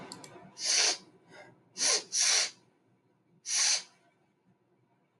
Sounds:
Sniff